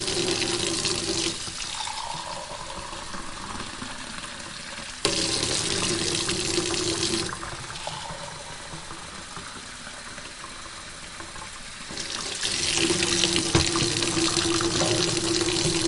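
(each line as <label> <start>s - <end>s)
Water is falling into a sink. 0.0s - 1.4s
Water is running from a tap, filling a cup. 1.4s - 5.0s
Water falling into a sink. 5.1s - 7.4s
Water is running from a tap, filling a cup. 7.5s - 11.9s
Water falling into a sink. 12.0s - 15.9s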